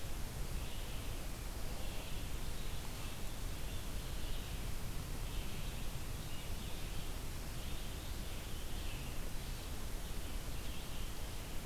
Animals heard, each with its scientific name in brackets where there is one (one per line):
Red-eyed Vireo (Vireo olivaceus)